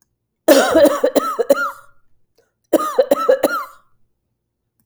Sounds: Cough